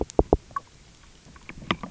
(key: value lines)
label: biophony, knock
recorder: SoundTrap 300